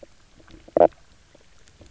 {"label": "biophony, knock croak", "recorder": "SoundTrap 300"}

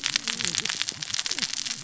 {"label": "biophony, cascading saw", "recorder": "SoundTrap 600 or HydroMoth"}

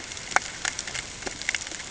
{"label": "ambient", "recorder": "HydroMoth"}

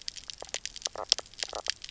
{"label": "biophony, knock croak", "recorder": "SoundTrap 300"}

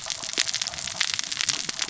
{"label": "biophony, cascading saw", "recorder": "SoundTrap 600 or HydroMoth"}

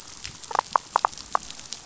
{"label": "biophony, damselfish", "recorder": "SoundTrap 500"}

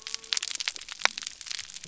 {"label": "biophony", "recorder": "SoundTrap 300"}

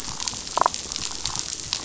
{"label": "biophony, damselfish", "recorder": "SoundTrap 500"}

